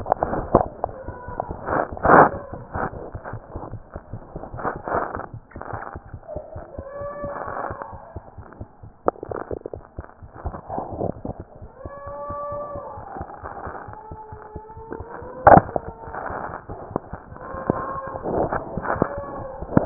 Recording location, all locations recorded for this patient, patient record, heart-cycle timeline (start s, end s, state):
mitral valve (MV)
aortic valve (AV)+mitral valve (MV)
#Age: Infant
#Sex: Male
#Height: 68.0 cm
#Weight: 7.3 kg
#Pregnancy status: False
#Murmur: Unknown
#Murmur locations: nan
#Most audible location: nan
#Systolic murmur timing: nan
#Systolic murmur shape: nan
#Systolic murmur grading: nan
#Systolic murmur pitch: nan
#Systolic murmur quality: nan
#Diastolic murmur timing: nan
#Diastolic murmur shape: nan
#Diastolic murmur grading: nan
#Diastolic murmur pitch: nan
#Diastolic murmur quality: nan
#Outcome: Normal
#Campaign: 2015 screening campaign
0.00	11.60	unannotated
11.60	11.71	S1
11.71	11.81	systole
11.81	11.91	S2
11.91	12.05	diastole
12.05	12.12	S1
12.12	12.27	systole
12.27	12.35	S2
12.35	12.50	diastole
12.50	12.58	S1
12.58	12.72	systole
12.72	12.82	S2
12.82	12.95	diastole
12.95	13.03	S1
13.03	13.17	systole
13.17	13.25	S2
13.25	13.41	diastole
13.41	13.49	S1
13.49	13.63	systole
13.63	13.73	S2
13.73	13.87	diastole
13.87	13.94	S1
13.94	14.10	systole
14.10	14.16	S2
14.16	14.31	diastole
14.31	14.37	S1
14.37	14.53	systole
14.53	14.60	S2
14.60	14.77	diastole
14.77	19.86	unannotated